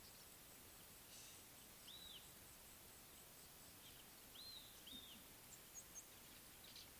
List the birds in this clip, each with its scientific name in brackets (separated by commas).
African Gray Flycatcher (Bradornis microrhynchus), Red-backed Scrub-Robin (Cercotrichas leucophrys)